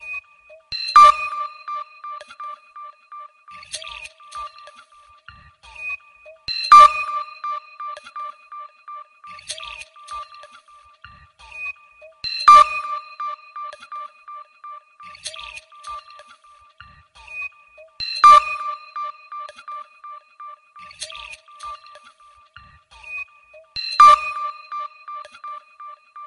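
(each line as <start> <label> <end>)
0.0 Clean, sharp beep with a sonar-like ping, resembling a digital notification or radar pulse. 6.5
0.9 A noisy, textured beep combines a synthetic tone with a subtle static-like quality. 1.3
6.6 A noisy, textured beep combines a synthetic tone with a subtle static-like quality. 7.5
7.6 Clean, sharp beep with a sonar-like ping, resembling a digital notification or radar pulse. 12.3
12.4 A noisy, textured beep combines a synthetic tone with a subtle static-like quality. 13.1
13.2 Clean, sharp beep with a sonar-like ping, resembling a digital notification or radar pulse. 18.0
18.1 A noisy, textured beep combines a synthetic tone with a subtle static-like quality. 18.7
18.8 Clean, sharp beep with a sonar-like ping, resembling a digital notification or radar pulse. 23.7
23.8 A noisy, textured beep combines a synthetic tone with a subtle static-like quality. 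24.7
24.8 Clean, sharp beep with a sonar-like ping, resembling a digital notification or radar pulse. 26.3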